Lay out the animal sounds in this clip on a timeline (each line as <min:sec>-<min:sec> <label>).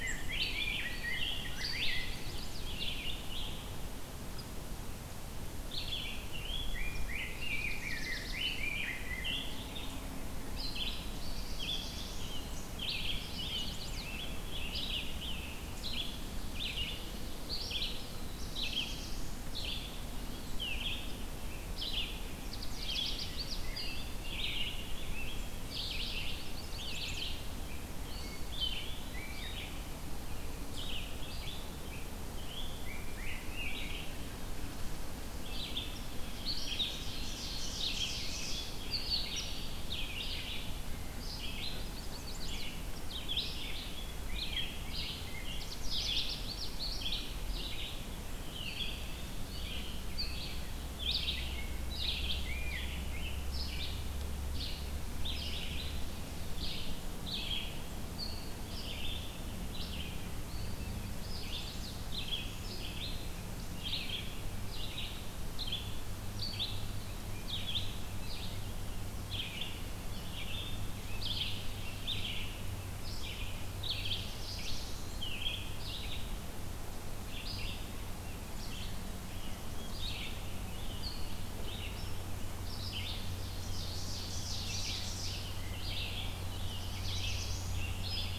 0:00.0-0:02.1 Rose-breasted Grosbeak (Pheucticus ludovicianus)
0:00.0-0:48.0 Red-eyed Vireo (Vireo olivaceus)
0:01.4-0:02.8 Chestnut-sided Warbler (Setophaga pensylvanica)
0:06.3-0:09.8 Rose-breasted Grosbeak (Pheucticus ludovicianus)
0:07.2-0:08.6 Chestnut-sided Warbler (Setophaga pensylvanica)
0:10.9-0:12.4 Black-throated Blue Warbler (Setophaga caerulescens)
0:13.1-0:14.2 Chestnut-sided Warbler (Setophaga pensylvanica)
0:18.0-0:19.4 Black-throated Blue Warbler (Setophaga caerulescens)
0:22.2-0:23.7 Canada Warbler (Cardellina canadensis)
0:26.0-0:27.4 Chestnut-sided Warbler (Setophaga pensylvanica)
0:28.7-0:29.5 Eastern Wood-Pewee (Contopus virens)
0:36.5-0:38.8 Ovenbird (Seiurus aurocapilla)
0:41.5-0:42.7 Chestnut-sided Warbler (Setophaga pensylvanica)
0:45.3-0:46.8 Canada Warbler (Cardellina canadensis)
0:48.4-1:28.4 Red-eyed Vireo (Vireo olivaceus)
1:00.9-1:02.0 Chestnut-sided Warbler (Setophaga pensylvanica)
1:13.6-1:15.2 Black-throated Blue Warbler (Setophaga caerulescens)
1:23.4-1:25.4 Ovenbird (Seiurus aurocapilla)
1:26.5-1:27.8 Black-throated Blue Warbler (Setophaga caerulescens)